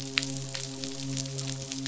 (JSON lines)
{"label": "biophony, midshipman", "recorder": "SoundTrap 500"}